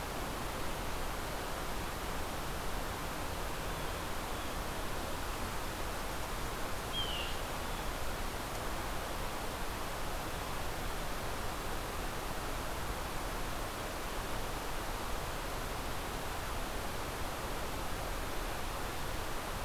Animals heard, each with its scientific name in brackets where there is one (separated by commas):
Blue Jay (Cyanocitta cristata)